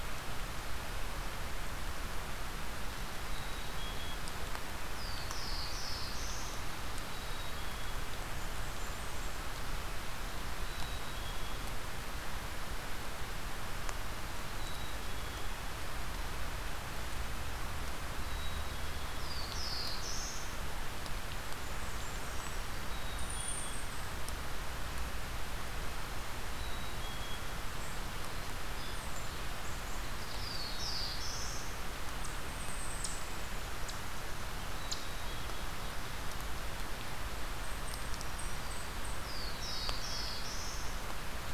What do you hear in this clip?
Black-capped Chickadee, Black-throated Blue Warbler, Blackburnian Warbler, Eastern Chipmunk, Ovenbird, Black-throated Green Warbler